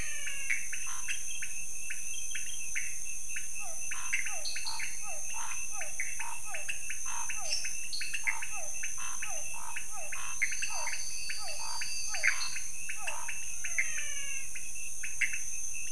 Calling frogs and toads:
menwig frog (Physalaemus albonotatus), pointedbelly frog (Leptodactylus podicipinus), Pithecopus azureus, Scinax fuscovarius, Physalaemus cuvieri, dwarf tree frog (Dendropsophus nanus), lesser tree frog (Dendropsophus minutus), Elachistocleis matogrosso
~1am

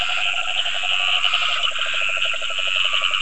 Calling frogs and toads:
Dendropsophus nahdereri, yellow cururu toad (Rhinella icterica), Scinax perereca, Cochran's lime tree frog (Sphaenorhynchus surdus)
7:30pm

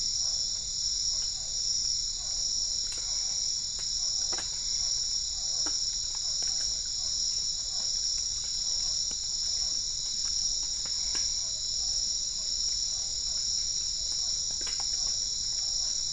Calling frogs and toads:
Physalaemus cuvieri, Boana albopunctata
~7pm

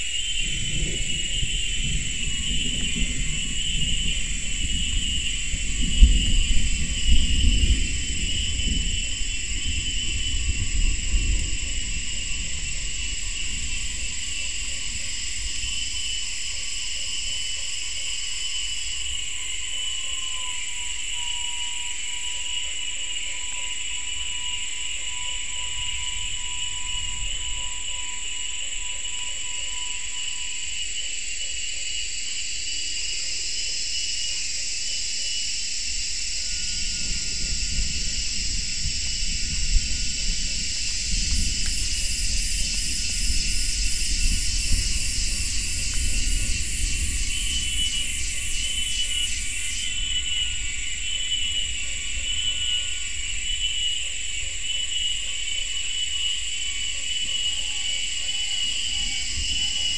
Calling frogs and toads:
Usina tree frog (Boana lundii)
6:30pm

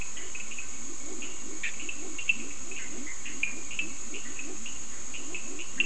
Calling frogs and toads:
Leptodactylus latrans, Cochran's lime tree frog (Sphaenorhynchus surdus), Bischoff's tree frog (Boana bischoffi)
~4am

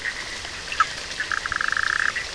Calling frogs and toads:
Bischoff's tree frog (Boana bischoffi), Cochran's lime tree frog (Sphaenorhynchus surdus)
12:30am

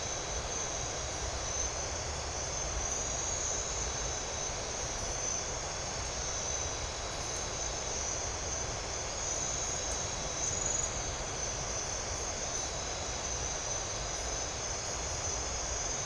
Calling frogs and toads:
none
8pm

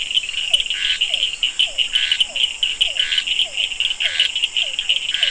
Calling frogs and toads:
Physalaemus cuvieri, Scinax perereca, Cochran's lime tree frog (Sphaenorhynchus surdus)
~8pm

